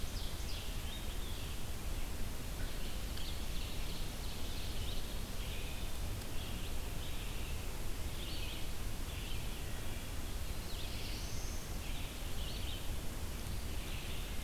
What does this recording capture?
Ovenbird, Red-eyed Vireo, Wood Thrush, Black-throated Blue Warbler